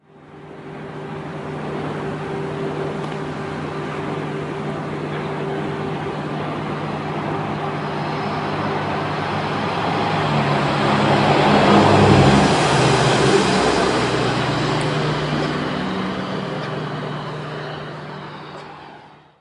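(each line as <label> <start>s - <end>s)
A vehicle passes by. 0.5s - 19.4s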